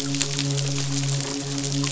{"label": "biophony, midshipman", "recorder": "SoundTrap 500"}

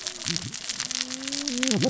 {"label": "biophony, cascading saw", "recorder": "SoundTrap 600 or HydroMoth"}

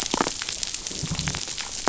{"label": "biophony, damselfish", "recorder": "SoundTrap 500"}
{"label": "biophony", "recorder": "SoundTrap 500"}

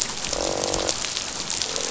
{"label": "biophony, croak", "recorder": "SoundTrap 500"}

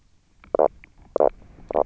{"label": "biophony, knock croak", "recorder": "SoundTrap 300"}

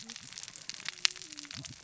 {"label": "biophony, cascading saw", "recorder": "SoundTrap 600 or HydroMoth"}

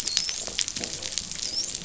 {"label": "biophony, dolphin", "recorder": "SoundTrap 500"}
{"label": "biophony", "recorder": "SoundTrap 500"}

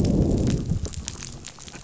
{"label": "biophony, growl", "recorder": "SoundTrap 500"}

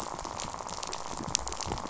{"label": "biophony, rattle", "recorder": "SoundTrap 500"}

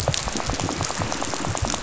{"label": "biophony, rattle", "recorder": "SoundTrap 500"}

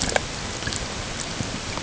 {"label": "ambient", "recorder": "HydroMoth"}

